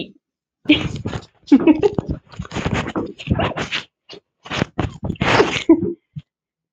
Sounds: Laughter